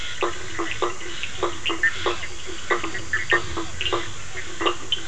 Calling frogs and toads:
blacksmith tree frog (Boana faber), Bischoff's tree frog (Boana bischoffi)
9pm

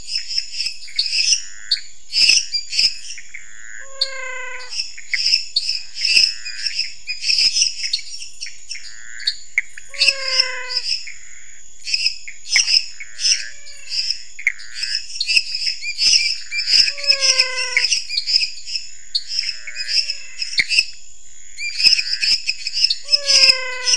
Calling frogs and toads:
lesser tree frog (Dendropsophus minutus), dwarf tree frog (Dendropsophus nanus), Pithecopus azureus, menwig frog (Physalaemus albonotatus), waxy monkey tree frog (Phyllomedusa sauvagii)
~11pm

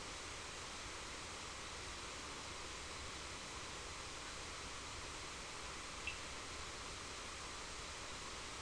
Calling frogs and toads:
Cochran's lime tree frog (Sphaenorhynchus surdus)
6:30pm

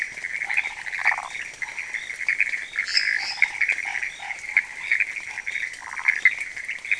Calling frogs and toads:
Chaco tree frog (Boana raniceps), waxy monkey tree frog (Phyllomedusa sauvagii), lesser tree frog (Dendropsophus minutus)
~2am

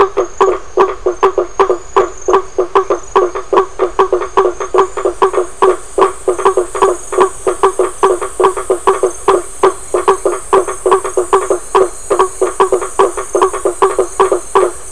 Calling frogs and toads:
blacksmith tree frog (Boana faber)
~7pm

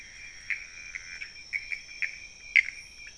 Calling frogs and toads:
Pithecopus azureus, pointedbelly frog (Leptodactylus podicipinus)
~1am

